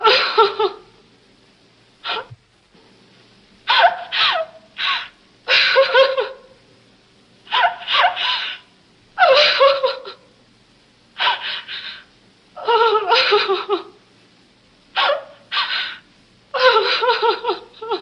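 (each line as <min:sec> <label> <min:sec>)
0:03.4 A woman is crying with audible sobs and an emotional tone. 0:06.5
0:07.3 A woman is crying with audible sobs and an emotional tone. 0:10.3
0:11.1 A woman is crying with audible sobs and an emotional tone. 0:14.0
0:14.8 A woman is crying with audible sobs and an emotional tone. 0:18.0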